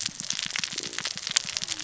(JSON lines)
{"label": "biophony, cascading saw", "recorder": "SoundTrap 600 or HydroMoth"}